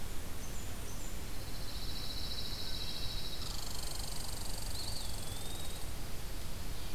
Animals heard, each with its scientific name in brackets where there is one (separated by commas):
Eastern Wood-Pewee (Contopus virens), Blackburnian Warbler (Setophaga fusca), Pine Warbler (Setophaga pinus), Red Squirrel (Tamiasciurus hudsonicus)